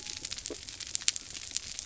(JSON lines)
{"label": "biophony", "recorder": "SoundTrap 300"}